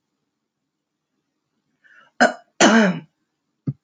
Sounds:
Throat clearing